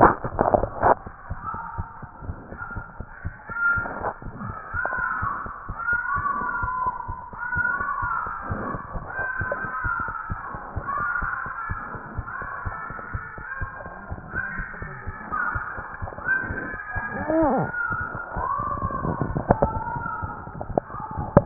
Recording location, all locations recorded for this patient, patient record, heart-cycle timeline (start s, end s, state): mitral valve (MV)
aortic valve (AV)+pulmonary valve (PV)+mitral valve (MV)
#Age: Child
#Sex: Male
#Height: 78.0 cm
#Weight: 12.5 kg
#Pregnancy status: False
#Murmur: Unknown
#Murmur locations: nan
#Most audible location: nan
#Systolic murmur timing: nan
#Systolic murmur shape: nan
#Systolic murmur grading: nan
#Systolic murmur pitch: nan
#Systolic murmur quality: nan
#Diastolic murmur timing: nan
#Diastolic murmur shape: nan
#Diastolic murmur grading: nan
#Diastolic murmur pitch: nan
#Diastolic murmur quality: nan
#Outcome: Abnormal
#Campaign: 2014 screening campaign
0.00	1.03	unannotated
1.03	1.11	S1
1.11	1.30	systole
1.30	1.40	S2
1.40	1.52	diastole
1.52	1.60	S1
1.60	1.78	systole
1.78	1.88	S2
1.88	2.00	diastole
2.00	2.08	S1
2.08	2.24	systole
2.24	2.36	S2
2.36	2.50	diastole
2.50	2.58	S1
2.58	2.74	systole
2.74	2.84	S2
2.84	2.98	diastole
2.98	3.06	S1
3.06	3.24	systole
3.24	3.34	S2
3.34	3.48	diastole
3.48	3.58	S1
3.58	3.76	systole
3.76	3.86	S2
3.86	3.98	diastole
3.98	4.08	S1
4.08	4.25	systole
4.25	4.36	S2
4.36	4.47	diastole
4.47	21.46	unannotated